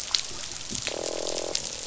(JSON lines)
{"label": "biophony, croak", "recorder": "SoundTrap 500"}